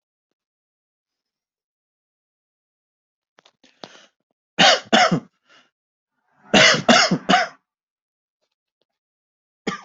{"expert_labels": [{"quality": "good", "cough_type": "dry", "dyspnea": false, "wheezing": false, "stridor": false, "choking": false, "congestion": false, "nothing": true, "diagnosis": "healthy cough", "severity": "pseudocough/healthy cough"}], "age": 49, "gender": "male", "respiratory_condition": true, "fever_muscle_pain": false, "status": "symptomatic"}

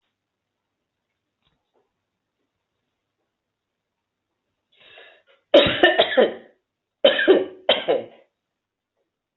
{"expert_labels": [{"quality": "ok", "cough_type": "unknown", "dyspnea": false, "wheezing": false, "stridor": false, "choking": false, "congestion": false, "nothing": true, "diagnosis": "upper respiratory tract infection", "severity": "unknown"}], "age": 65, "gender": "female", "respiratory_condition": false, "fever_muscle_pain": false, "status": "healthy"}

